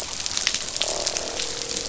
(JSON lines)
{"label": "biophony, croak", "recorder": "SoundTrap 500"}